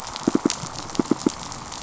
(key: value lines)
label: biophony, pulse
recorder: SoundTrap 500